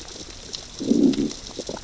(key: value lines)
label: biophony, growl
recorder: SoundTrap 600 or HydroMoth